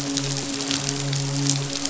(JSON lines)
{"label": "biophony, midshipman", "recorder": "SoundTrap 500"}